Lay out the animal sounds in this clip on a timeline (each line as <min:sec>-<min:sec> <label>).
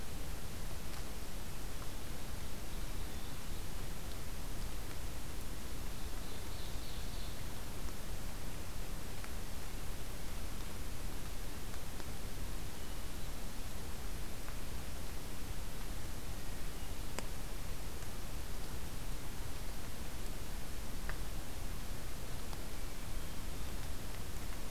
0:05.9-0:07.4 Ovenbird (Seiurus aurocapilla)
0:12.7-0:13.7 Hermit Thrush (Catharus guttatus)
0:16.3-0:17.1 Hermit Thrush (Catharus guttatus)
0:22.7-0:24.0 Hermit Thrush (Catharus guttatus)